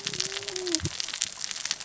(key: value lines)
label: biophony, cascading saw
recorder: SoundTrap 600 or HydroMoth